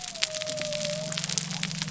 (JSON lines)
{"label": "biophony", "recorder": "SoundTrap 300"}